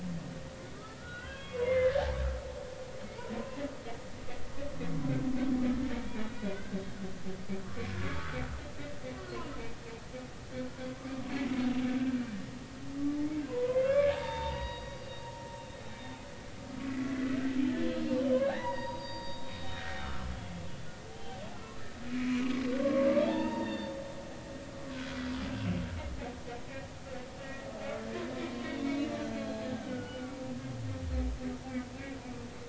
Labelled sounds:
0.8	2.1	humpback whale, 1.1 to 3.4 kHz
3.0	3.3	humpback whale, 2.1 to 2.5 kHz
5.9	6.5	humpback whale, 1.4 to 3.9 kHz
8.1	8.4	humpback whale, 1.1 to 1.6 kHz
9.2	9.5	humpback whale, 1.2 to 1.5 kHz
11.0	11.3	humpback whale, 1.1 to 1.3 kHz
13.5	15.5	humpback whale, 0.80 to 5.2 kHz
16.9	17.5	humpback whale, 1.4 to 2.0 kHz
17.9	19.5	humpback whale, 0.80 to 4.9 kHz
20.0	20.5	humpback whale, 1.0 to 3.7 kHz
21.1	21.4	humpback whale, 0.80 to 3.2 kHz
22.1	24.0	humpback whale, 0.80 to 4.7 kHz
24.9	25.2	humpback whale, 1.3 to 1.6 kHz
27.4	27.7	humpback whale, 1.8 to 2.0 kHz
28.4	30.3	humpback whale, 0.96 to 4.2 kHz
30.7	31.4	humpback whale, 1.3 to 1.6 kHz

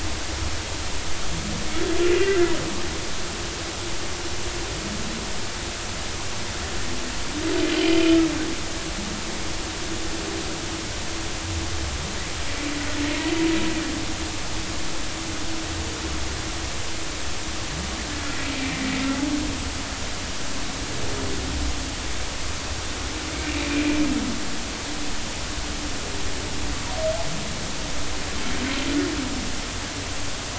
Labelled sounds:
2.2	2.5	humpback whale, 1.5 to 1.8 kHz
18.6	18.8	humpback whale, 2.3 to 2.4 kHz

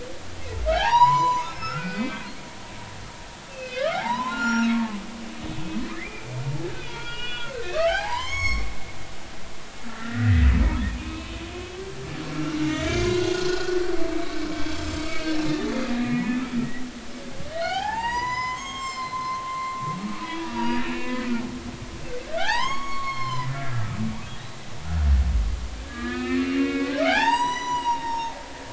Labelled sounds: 0.7	2.2	humpback whale, 0.80 to 7.1 kHz
3.5	5.0	humpback whale, 0.80 to 7.1 kHz
5.9	6.3	humpback whale, 1.7 to 2.5 kHz
6.8	8.7	humpback whale, 0.80 to 7.9 kHz
9.8	10.5	humpback whale, 1.3 to 2.0 kHz
10.9	11.4	humpback whale, 1.0 to 2.7 kHz
12.3	15.4	humpback whale, 1.2 to 6.3 kHz
16.0	16.4	humpback whale, 1.9 to 2.2 kHz
17.6	21.3	humpback whale, 0.80 to 8.0 kHz
22.2	24.0	humpback whale, 0.80 to 6.7 kHz
25.9	28.3	humpback whale, 0.80 to 8.0 kHz

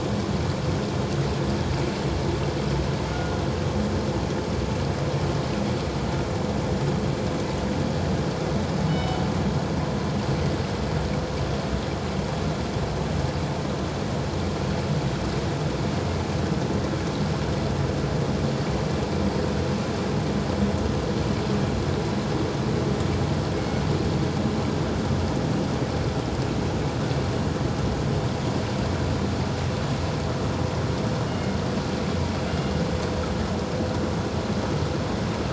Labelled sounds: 3.1	3.4	killer whale, northern resident, G clan, 1.4 to 1.5 kHz
8.9	9.2	killer whale, northern resident, G clan, 2.9 to 5.3 kHz
23.6	23.8	killer whale, northern resident, G clan, 2.1 to 2.2 kHz
31.3	31.6	killer whale, northern resident, G clan, 2.1 to 2.2 kHz

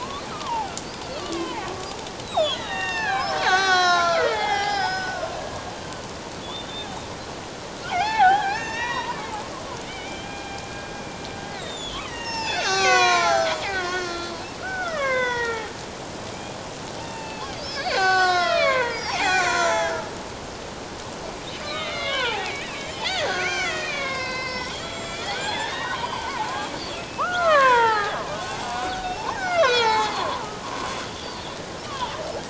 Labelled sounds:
0.3	5.3	killer whale, Bigg's (transient), 0.78 to 7.1 kHz
6.4	6.9	killer whale, Bigg's (transient), 3.3 to 3.7 kHz
7.8	9.2	killer whale, Bigg's (transient), 0.78 to 6.6 kHz
9.8	10.7	killer whale, Bigg's (transient), 1.6 to 3.3 kHz
11.5	15.7	killer whale, Bigg's (transient), 0.78 to 7.6 kHz
17.0	20.0	killer whale, Bigg's (transient), 0.78 to 7.5 kHz
21.6	26.5	killer whale, Bigg's (transient), 0.78 to 7.5 kHz
26.9	30.4	killer whale, Bigg's (transient), 0.78 to 6.2 kHz
31.8	32.1	killer whale, Bigg's (transient), 0.84 to 1.2 kHz

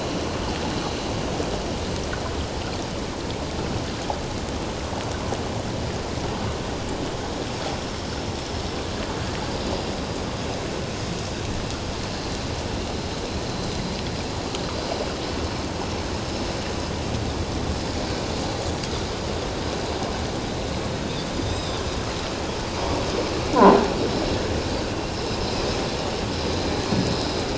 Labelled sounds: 21.4	21.8	Pacific white-sided dolphin, 3.4 to 7.7 kHz

